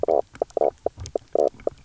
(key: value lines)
label: biophony, knock croak
recorder: SoundTrap 300